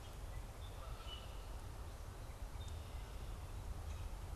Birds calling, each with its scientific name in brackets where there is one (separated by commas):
Canada Goose (Branta canadensis), Common Grackle (Quiscalus quiscula)